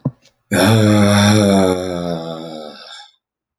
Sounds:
Sigh